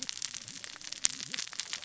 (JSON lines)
{"label": "biophony, cascading saw", "recorder": "SoundTrap 600 or HydroMoth"}